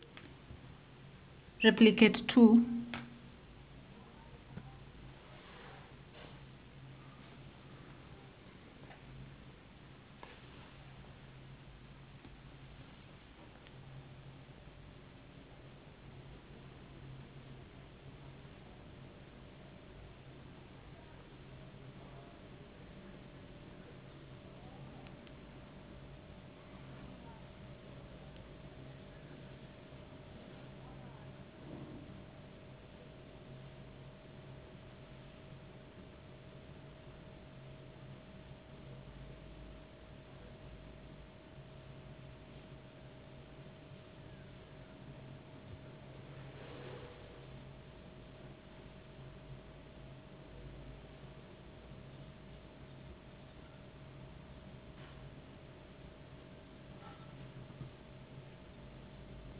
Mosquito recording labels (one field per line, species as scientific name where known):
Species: no mosquito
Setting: insect culture